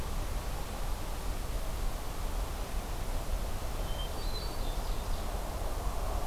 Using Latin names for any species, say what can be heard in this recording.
Catharus guttatus, Seiurus aurocapilla